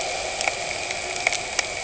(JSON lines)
{"label": "anthrophony, boat engine", "recorder": "HydroMoth"}